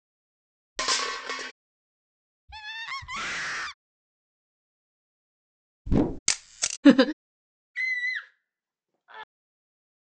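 First a metal object falls. Then someone screams. After that, a whoosh can be heard. Later, the sound of a camera is audible. Following that, someone chuckles. Then a person screams.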